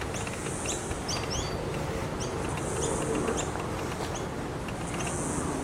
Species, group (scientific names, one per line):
Yoyetta cumberlandi
Cicadidae